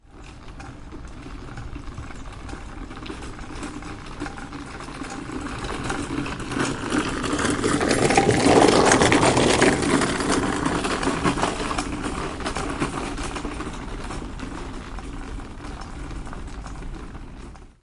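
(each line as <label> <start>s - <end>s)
A toy car is driving in the distance. 0.0s - 7.1s
A toy car is driving nearby. 7.1s - 12.0s
A toy car is driving in the distance. 12.1s - 17.8s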